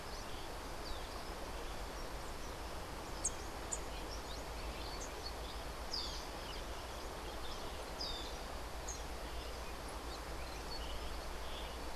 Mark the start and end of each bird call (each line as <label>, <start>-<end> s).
Cabanis's Wren (Cantorchilus modestus), 0.0-1.4 s
Social Flycatcher (Myiozetetes similis), 5.8-12.0 s